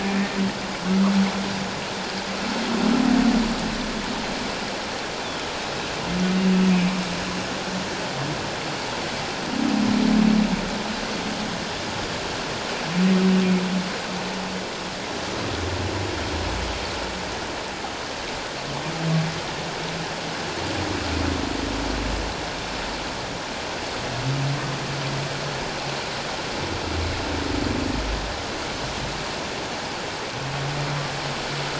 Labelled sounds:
6.7	6.9	humpback whale, 2.2 to 2.4 kHz

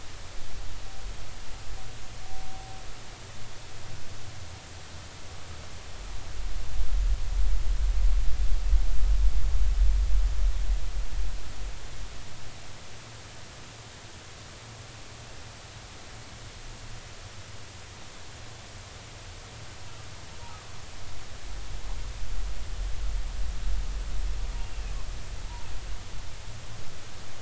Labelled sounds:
24.6	24.9	humpback whale, 2.4 to 2.9 kHz

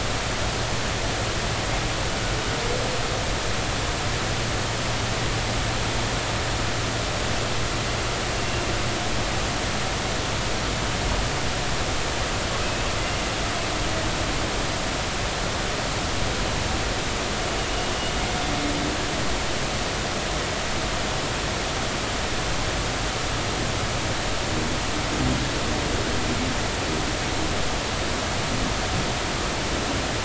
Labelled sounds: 12.6	12.9	humpback whale, 2.5 to 2.7 kHz

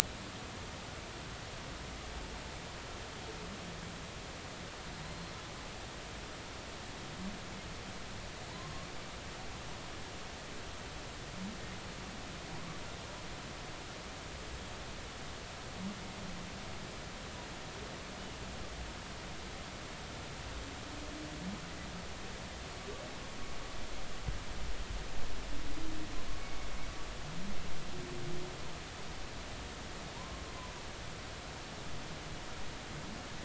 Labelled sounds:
5.0	5.3	humpback whale, 3.7 to 4.2 kHz
8.5	8.9	humpback whale, 0.86 to 1.2 kHz
12.5	12.8	humpback whale, 0.80 to 1.2 kHz

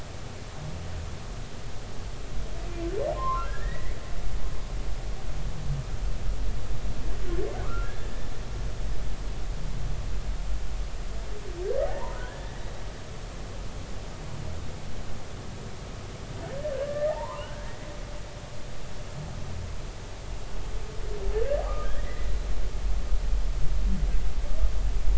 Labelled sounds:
3.1	4.0	humpback whale, 0.96 to 2.3 kHz
7.6	7.9	humpback whale, 1.1 to 1.5 kHz
11.8	12.5	humpback whale, 0.80 to 2.0 kHz
16.7	17.7	humpback whale, 0.80 to 2.0 kHz
21.6	22.3	humpback whale, 1.1 to 2.0 kHz

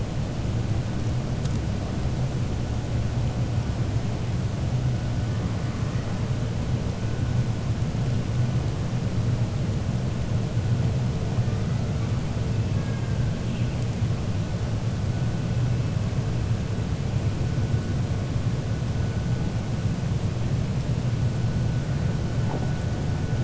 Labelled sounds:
12.7	13.1	killer whale, 0.93 to 2.2 kHz

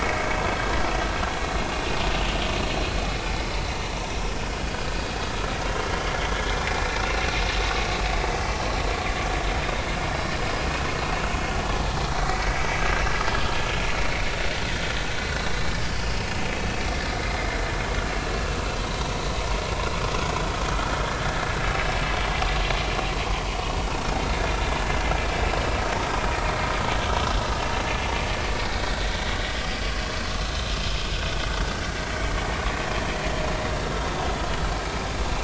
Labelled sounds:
1.7	2.0	vessel noise, 2.7 to 2.9 kHz
6.7	7.2	vessel noise, 2.3 to 2.8 kHz
12.2	12.5	vessel noise, 1.9 to 2.0 kHz
12.8	13.0	vessel noise, 1.5 to 1.7 kHz
18.2	19.1	vessel noise, 0.90 to 4.7 kHz
33.4	33.6	vessel noise, 6.4 to 6.7 kHz

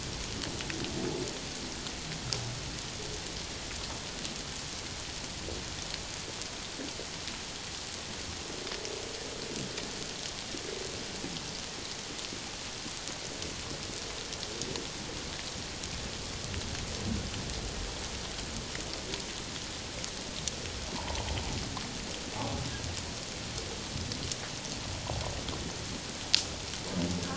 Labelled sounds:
21.0	21.3	humpback whale, 0.81 to 1.1 kHz

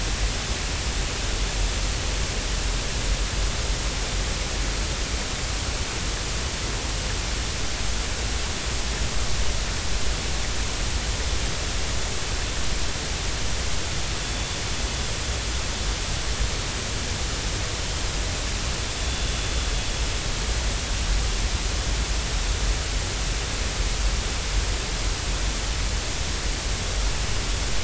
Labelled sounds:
19.0	19.2	vessel noise, 3.4 to 3.5 kHz

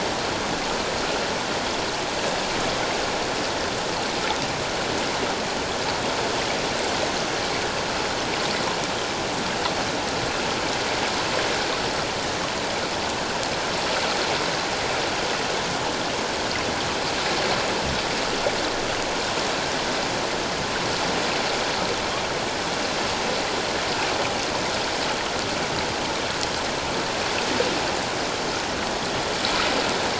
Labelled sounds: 7.1	7.3	killer whale, 5.8 to 6.3 kHz

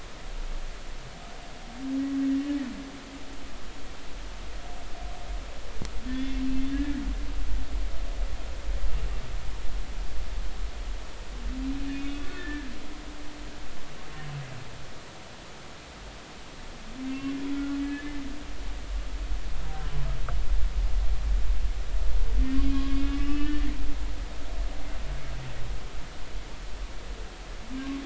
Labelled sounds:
6.1	6.5	humpback whale, 2.1 to 3.5 kHz
6.7	7.0	humpback whale, 1.6 to 1.8 kHz
11.9	12.7	humpback whale, 1.6 to 3.7 kHz
17.5	18.3	humpback whale, 1.3 to 2.8 kHz
22.6	24.4	humpback whale, 1.0 to 5.2 kHz

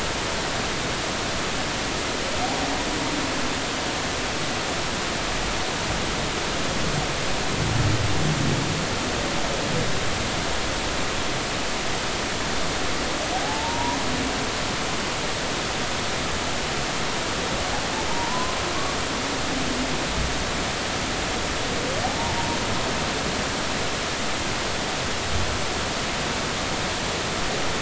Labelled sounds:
13.4	14.0	humpback whale, 0.80 to 1.0 kHz
18.1	18.6	humpback whale, 0.86 to 1.1 kHz

